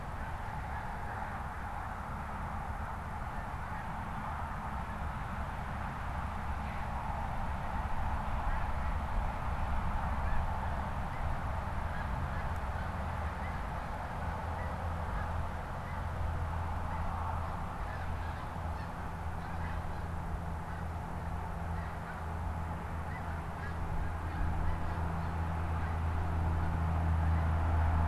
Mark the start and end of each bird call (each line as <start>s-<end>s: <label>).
0.0s-28.0s: Snow Goose (Anser caerulescens)